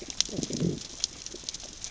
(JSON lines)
{"label": "biophony, growl", "recorder": "SoundTrap 600 or HydroMoth"}